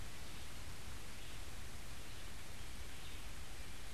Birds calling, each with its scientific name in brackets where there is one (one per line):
Red-eyed Vireo (Vireo olivaceus)